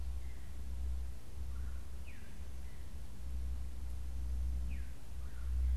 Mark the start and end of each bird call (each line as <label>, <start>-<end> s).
Veery (Catharus fuscescens), 0.0-5.8 s
Red-bellied Woodpecker (Melanerpes carolinus), 1.4-1.9 s
Red-bellied Woodpecker (Melanerpes carolinus), 5.0-5.6 s